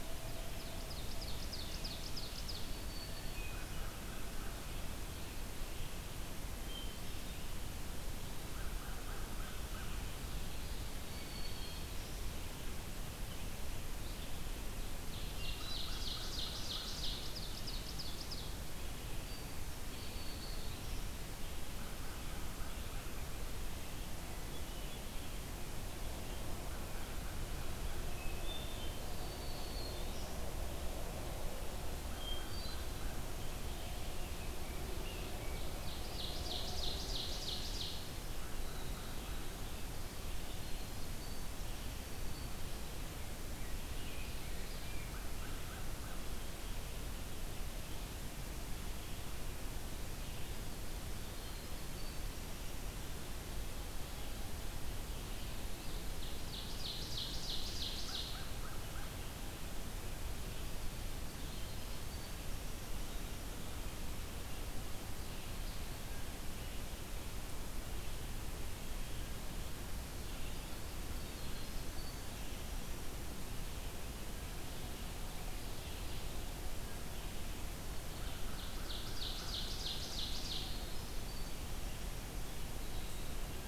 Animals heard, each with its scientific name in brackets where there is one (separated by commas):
Ovenbird (Seiurus aurocapilla), Winter Wren (Troglodytes hiemalis), Hermit Thrush (Catharus guttatus), American Crow (Corvus brachyrhynchos), Black-throated Green Warbler (Setophaga virens), Red-eyed Vireo (Vireo olivaceus)